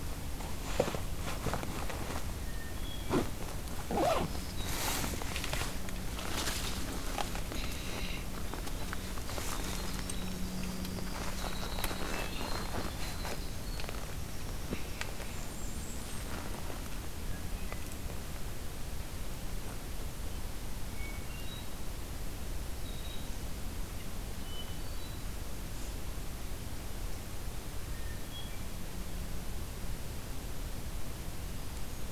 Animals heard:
Blackburnian Warbler (Setophaga fusca), Black-throated Green Warbler (Setophaga virens), Winter Wren (Troglodytes hiemalis), Hermit Thrush (Catharus guttatus)

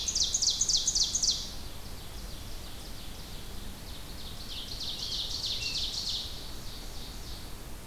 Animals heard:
Ovenbird (Seiurus aurocapilla), Scarlet Tanager (Piranga olivacea)

